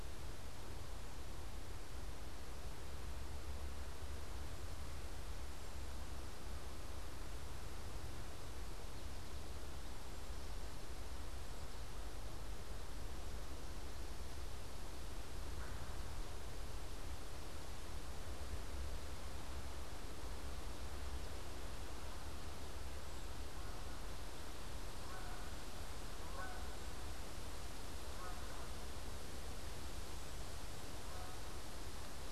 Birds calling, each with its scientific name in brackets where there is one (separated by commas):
Canada Goose (Branta canadensis)